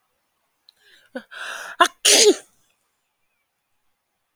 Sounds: Sneeze